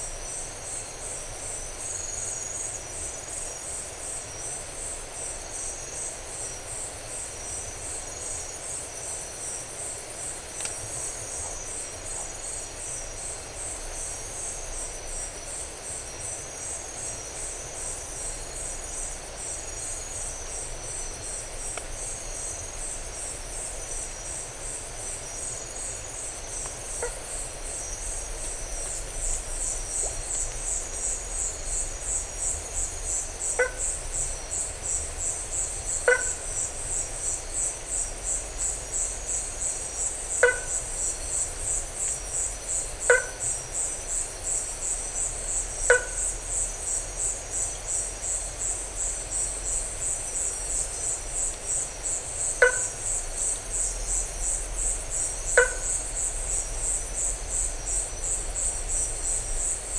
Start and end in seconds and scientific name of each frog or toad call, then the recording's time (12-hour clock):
26.8	27.3	Boana faber
33.5	33.8	Boana faber
36.0	36.3	Boana faber
40.4	40.7	Boana faber
43.0	43.4	Boana faber
45.7	46.3	Boana faber
52.6	53.1	Boana faber
55.5	55.8	Boana faber
3:00am